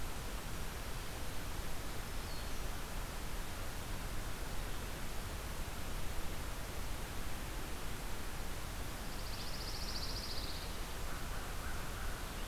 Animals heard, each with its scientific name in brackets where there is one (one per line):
American Crow (Corvus brachyrhynchos)
Black-throated Green Warbler (Setophaga virens)
Pine Warbler (Setophaga pinus)